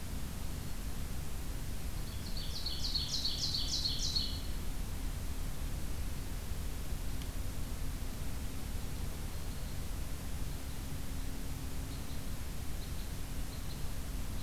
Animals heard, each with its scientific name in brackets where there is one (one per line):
Red Crossbill (Loxia curvirostra)
Black-throated Green Warbler (Setophaga virens)
Ovenbird (Seiurus aurocapilla)